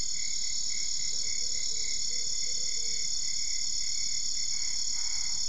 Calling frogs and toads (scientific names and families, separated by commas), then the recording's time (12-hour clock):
Boana albopunctata (Hylidae)
11:00pm